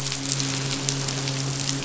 {"label": "biophony, midshipman", "recorder": "SoundTrap 500"}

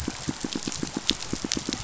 {"label": "biophony, pulse", "recorder": "SoundTrap 500"}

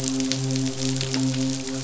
{"label": "biophony, midshipman", "recorder": "SoundTrap 500"}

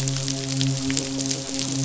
{"label": "biophony, midshipman", "recorder": "SoundTrap 500"}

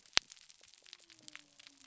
{"label": "biophony", "recorder": "SoundTrap 300"}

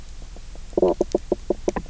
{"label": "biophony, knock croak", "recorder": "SoundTrap 300"}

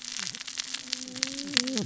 {"label": "biophony, cascading saw", "recorder": "SoundTrap 600 or HydroMoth"}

